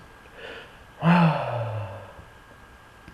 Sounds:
Sigh